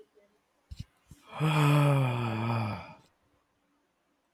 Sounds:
Sigh